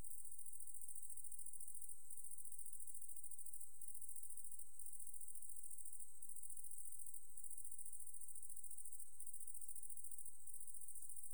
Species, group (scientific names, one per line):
Eupholidoptera schmidti
Orthoptera